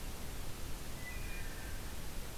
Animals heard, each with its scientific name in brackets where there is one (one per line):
Wood Thrush (Hylocichla mustelina)